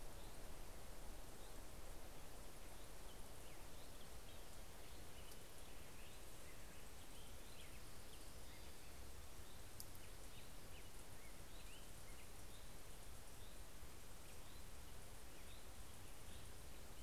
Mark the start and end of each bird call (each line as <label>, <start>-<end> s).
Hermit Thrush (Catharus guttatus), 0.0-17.0 s
Black-headed Grosbeak (Pheucticus melanocephalus), 0.5-17.0 s
Orange-crowned Warbler (Leiothlypis celata), 7.2-9.2 s